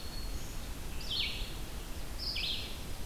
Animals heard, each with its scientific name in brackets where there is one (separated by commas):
Black-throated Green Warbler (Setophaga virens), Eastern Wood-Pewee (Contopus virens), Red-eyed Vireo (Vireo olivaceus)